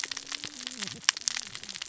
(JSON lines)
{"label": "biophony, cascading saw", "recorder": "SoundTrap 600 or HydroMoth"}